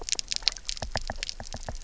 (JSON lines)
{"label": "biophony, knock", "recorder": "SoundTrap 300"}